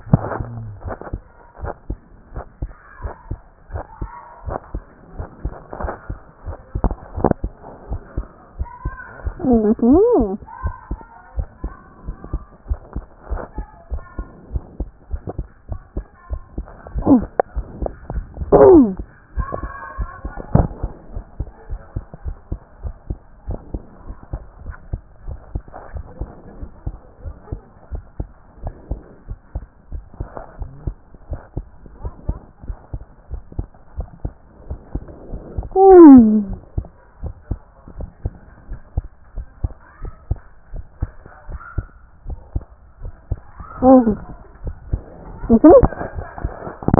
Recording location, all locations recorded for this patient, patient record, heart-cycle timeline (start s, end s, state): tricuspid valve (TV)
aortic valve (AV)+pulmonary valve (PV)+tricuspid valve (TV)+mitral valve (MV)
#Age: Child
#Sex: Male
#Height: 127.0 cm
#Weight: 28.0 kg
#Pregnancy status: False
#Murmur: Absent
#Murmur locations: nan
#Most audible location: nan
#Systolic murmur timing: nan
#Systolic murmur shape: nan
#Systolic murmur grading: nan
#Systolic murmur pitch: nan
#Systolic murmur quality: nan
#Diastolic murmur timing: nan
#Diastolic murmur shape: nan
#Diastolic murmur grading: nan
#Diastolic murmur pitch: nan
#Diastolic murmur quality: nan
#Outcome: Normal
#Campaign: 2014 screening campaign
0.00	21.14	unannotated
21.14	21.24	S1
21.24	21.40	systole
21.40	21.48	S2
21.48	21.70	diastole
21.70	21.80	S1
21.80	21.96	systole
21.96	22.04	S2
22.04	22.24	diastole
22.24	22.36	S1
22.36	22.50	systole
22.50	22.60	S2
22.60	22.82	diastole
22.82	22.94	S1
22.94	23.08	systole
23.08	23.18	S2
23.18	23.48	diastole
23.48	23.58	S1
23.58	23.74	systole
23.74	23.82	S2
23.82	24.08	diastole
24.08	24.18	S1
24.18	24.34	systole
24.34	24.42	S2
24.42	24.66	diastole
24.66	24.78	S1
24.78	24.92	systole
24.92	25.00	S2
25.00	25.28	diastole
25.28	25.38	S1
25.38	25.54	systole
25.54	25.62	S2
25.62	25.94	diastole
25.94	26.04	S1
26.04	26.20	systole
26.20	26.30	S2
26.30	26.58	diastole
26.58	26.70	S1
26.70	26.86	systole
26.86	26.96	S2
26.96	27.24	diastole
27.24	27.36	S1
27.36	27.50	systole
27.50	27.60	S2
27.60	27.92	diastole
27.92	28.02	S1
28.02	28.18	systole
28.18	28.28	S2
28.28	28.62	diastole
28.62	28.74	S1
28.74	28.90	systole
28.90	29.00	S2
29.00	29.28	diastole
29.28	29.40	S1
29.40	29.54	systole
29.54	29.64	S2
29.64	29.92	diastole
29.92	46.99	unannotated